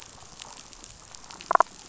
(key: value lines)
label: biophony, damselfish
recorder: SoundTrap 500